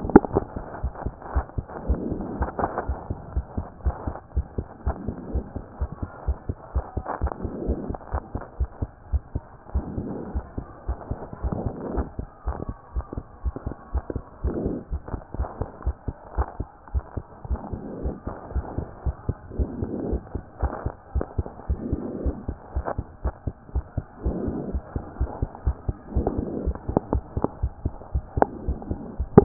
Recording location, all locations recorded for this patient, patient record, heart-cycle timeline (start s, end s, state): pulmonary valve (PV)
aortic valve (AV)+pulmonary valve (PV)+tricuspid valve (TV)+mitral valve (MV)
#Age: Child
#Sex: Male
#Height: 111.0 cm
#Weight: 21.3 kg
#Pregnancy status: False
#Murmur: Absent
#Murmur locations: nan
#Most audible location: nan
#Systolic murmur timing: nan
#Systolic murmur shape: nan
#Systolic murmur grading: nan
#Systolic murmur pitch: nan
#Systolic murmur quality: nan
#Diastolic murmur timing: nan
#Diastolic murmur shape: nan
#Diastolic murmur grading: nan
#Diastolic murmur pitch: nan
#Diastolic murmur quality: nan
#Outcome: Normal
#Campaign: 2014 screening campaign
0.00	0.82	unannotated
0.82	0.92	S1
0.92	1.04	systole
1.04	1.14	S2
1.14	1.34	diastole
1.34	1.46	S1
1.46	1.56	systole
1.56	1.66	S2
1.66	1.88	diastole
1.88	2.00	S1
2.00	2.11	systole
2.11	2.20	S2
2.20	2.38	diastole
2.38	2.50	S1
2.50	2.60	systole
2.60	2.70	S2
2.70	2.86	diastole
2.86	2.98	S1
2.98	3.08	systole
3.08	3.18	S2
3.18	3.34	diastole
3.34	3.46	S1
3.46	3.56	systole
3.56	3.66	S2
3.66	3.84	diastole
3.84	3.96	S1
3.96	4.06	systole
4.06	4.16	S2
4.16	4.34	diastole
4.34	4.46	S1
4.46	4.56	systole
4.56	4.66	S2
4.66	4.86	diastole
4.86	4.96	S1
4.96	5.06	systole
5.06	5.16	S2
5.16	5.32	diastole
5.32	5.44	S1
5.44	5.54	systole
5.54	5.64	S2
5.64	5.80	diastole
5.80	5.90	S1
5.90	6.00	systole
6.00	6.10	S2
6.10	6.26	diastole
6.26	6.38	S1
6.38	6.48	systole
6.48	6.56	S2
6.56	6.74	diastole
6.74	6.84	S1
6.84	6.96	systole
6.96	7.04	S2
7.04	7.22	diastole
7.22	7.32	S1
7.32	7.42	systole
7.42	7.52	S2
7.52	7.66	diastole
7.66	7.78	S1
7.78	7.88	systole
7.88	7.96	S2
7.96	8.12	diastole
8.12	8.22	S1
8.22	8.34	systole
8.34	8.42	S2
8.42	8.58	diastole
8.58	8.70	S1
8.70	8.80	systole
8.80	8.90	S2
8.90	9.12	diastole
9.12	9.22	S1
9.22	9.34	systole
9.34	9.42	S2
9.42	9.74	diastole
9.74	9.86	S1
9.86	9.98	systole
9.98	10.07	S2
10.07	10.34	diastole
10.34	10.44	S1
10.44	10.56	systole
10.56	10.66	S2
10.66	10.88	diastole
10.88	10.98	S1
10.98	11.10	systole
11.10	11.18	S2
11.18	11.42	diastole
11.42	11.53	S1
11.53	11.64	systole
11.64	11.74	S2
11.74	11.94	diastole
11.94	12.06	S1
12.06	12.18	systole
12.18	12.28	S2
12.28	12.46	diastole
12.46	12.56	S1
12.56	12.68	systole
12.68	12.76	S2
12.76	12.94	diastole
12.94	13.04	S1
13.04	13.16	systole
13.16	13.24	S2
13.24	13.44	diastole
13.44	13.54	S1
13.54	13.66	systole
13.66	13.74	S2
13.74	13.92	diastole
13.92	14.04	S1
14.04	14.14	systole
14.14	14.22	S2
14.22	14.44	diastole
14.44	14.56	S1
14.56	14.64	systole
14.64	14.75	S2
14.75	14.92	diastole
14.92	15.02	S1
15.02	15.12	systole
15.12	15.20	S2
15.20	15.38	diastole
15.38	15.48	S1
15.48	15.60	systole
15.60	15.68	S2
15.68	15.84	diastole
15.84	15.96	S1
15.96	16.06	systole
16.06	16.16	S2
16.16	16.36	diastole
16.36	16.46	S1
16.46	16.58	systole
16.58	16.68	S2
16.68	16.92	diastole
16.92	17.04	S1
17.04	17.16	systole
17.16	17.24	S2
17.24	17.48	diastole
17.48	17.60	S1
17.60	17.72	systole
17.72	17.80	S2
17.80	18.02	diastole
18.02	18.14	S1
18.14	18.26	systole
18.26	18.34	S2
18.34	18.54	diastole
18.54	18.66	S1
18.66	18.76	systole
18.76	18.86	S2
18.86	19.04	diastole
19.04	19.16	S1
19.16	19.28	systole
19.28	19.36	S2
19.36	19.58	diastole
19.58	19.70	S1
19.70	19.80	systole
19.80	19.90	S2
19.90	20.08	diastole
20.08	20.22	S1
20.22	20.34	systole
20.34	20.42	S2
20.42	20.62	diastole
20.62	20.72	S1
20.72	20.84	systole
20.84	20.94	S2
20.94	21.14	diastole
21.14	21.24	S1
21.24	21.36	systole
21.36	21.46	S2
21.46	21.68	diastole
21.68	21.80	S1
21.80	21.90	systole
21.90	22.00	S2
22.00	22.22	diastole
22.22	22.36	S1
22.36	22.48	systole
22.48	22.56	S2
22.56	22.74	diastole
22.74	22.86	S1
22.86	22.96	systole
22.96	23.06	S2
23.06	23.24	diastole
23.24	23.34	S1
23.34	23.46	systole
23.46	23.54	S2
23.54	23.74	diastole
23.74	23.84	S1
23.84	23.96	systole
23.96	24.04	S2
24.04	24.24	diastole
24.24	24.35	S1
24.35	24.44	systole
24.44	24.56	S2
24.56	24.72	diastole
24.72	24.82	S1
24.82	24.94	systole
24.94	25.04	S2
25.04	25.18	diastole
25.18	25.30	S1
25.30	25.40	systole
25.40	25.50	S2
25.50	25.66	diastole
25.66	25.76	S1
25.76	25.86	systole
25.86	25.96	S2
25.96	26.14	diastole
26.14	26.26	S1
26.26	26.37	systole
26.37	26.46	S2
26.46	26.64	diastole
26.64	26.76	S1
26.76	26.88	systole
26.88	26.98	S2
26.98	27.12	diastole
27.12	27.22	S1
27.22	27.36	systole
27.36	27.44	S2
27.44	27.62	diastole
27.62	27.72	S1
27.72	27.84	systole
27.84	27.94	S2
27.94	28.14	diastole
28.14	28.24	S1
28.24	28.36	systole
28.36	28.48	S2
28.48	28.66	diastole
28.66	28.78	S1
28.78	28.88	systole
28.88	28.98	S2
28.98	29.18	diastole
29.18	29.44	unannotated